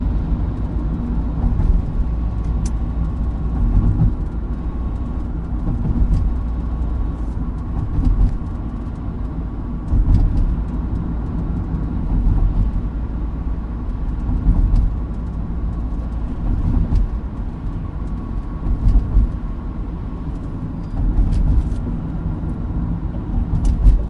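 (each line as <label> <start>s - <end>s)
The muffled sound of a car interior. 0.0s - 1.3s
A muffled tire noise is heard as the car goes over bumps. 1.3s - 1.9s
Muffled sounds of raindrops tapping on a car's roof and windows. 1.9s - 3.5s
A muffled tire noise is heard as the car goes over bumps. 3.5s - 4.1s
Muffled sounds of raindrops tapping on a car's roof and windows. 4.1s - 5.6s
A muffled tire noise is heard as the car goes over bumps. 5.6s - 6.4s
Muffled sounds of raindrops tapping on a car's roof and windows. 6.4s - 7.8s
A muffled tire noise is heard as the car goes over bumps. 7.8s - 8.4s
Muffled sounds of raindrops tapping on a car's roof and windows. 8.4s - 9.9s
A muffled tire noise is heard as the car goes over bumps. 9.9s - 10.6s
Muffled sounds of raindrops tapping on a car's roof and windows. 10.6s - 12.1s
A muffled tire noise is heard as the car goes over bumps. 12.1s - 12.7s
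Muffled sounds of raindrops tapping on a car's roof and windows. 12.7s - 14.3s
A muffled tire noise is heard as the car goes over bumps. 14.3s - 14.9s
Muffled sounds of raindrops tapping on a car's roof and windows. 14.9s - 16.4s
A muffled tire noise is heard as the car goes over bumps. 16.4s - 17.1s
Muffled sounds of raindrops tapping on a car's roof and windows. 17.1s - 18.6s
A muffled tire noise is heard as the car goes over bumps. 18.6s - 19.3s
Muffled sounds of raindrops tapping on a car's roof and windows. 19.3s - 20.9s
A muffled tire noise is heard as the car goes over bumps. 20.9s - 21.7s
Muffled sounds of raindrops tapping on a car's roof and windows. 21.6s - 23.5s
A muffled tire noise is heard as the car goes over bumps. 23.5s - 24.1s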